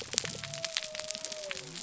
{"label": "biophony", "recorder": "SoundTrap 300"}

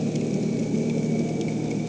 {"label": "anthrophony, boat engine", "recorder": "HydroMoth"}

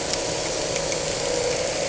{"label": "anthrophony, boat engine", "recorder": "HydroMoth"}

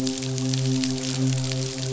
{"label": "biophony, midshipman", "recorder": "SoundTrap 500"}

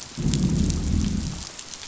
{"label": "biophony, growl", "recorder": "SoundTrap 500"}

